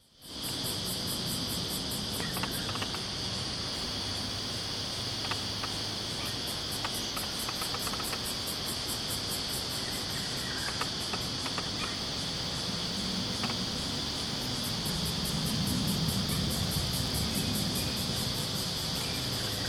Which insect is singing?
Yoyetta celis, a cicada